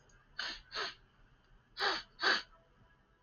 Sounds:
Sniff